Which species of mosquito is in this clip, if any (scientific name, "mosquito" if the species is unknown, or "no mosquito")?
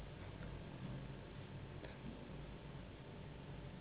Anopheles gambiae s.s.